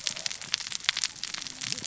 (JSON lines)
{"label": "biophony, cascading saw", "recorder": "SoundTrap 600 or HydroMoth"}